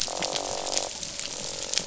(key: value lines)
label: biophony
recorder: SoundTrap 500

label: biophony, croak
recorder: SoundTrap 500